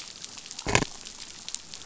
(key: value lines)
label: biophony
recorder: SoundTrap 500